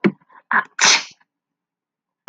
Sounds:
Sneeze